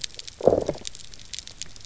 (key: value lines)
label: biophony, low growl
recorder: SoundTrap 300